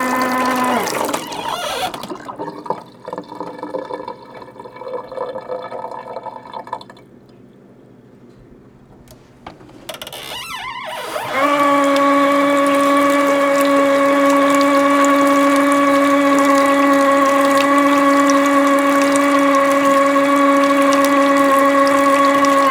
Is this annoying?
yes